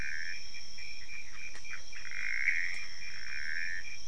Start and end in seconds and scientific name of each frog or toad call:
0.0	3.8	Pithecopus azureus